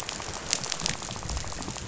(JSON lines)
{"label": "biophony, rattle", "recorder": "SoundTrap 500"}